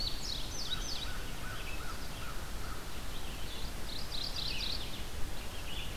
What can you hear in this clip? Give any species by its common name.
Indigo Bunting, Red-eyed Vireo, American Crow, Mourning Warbler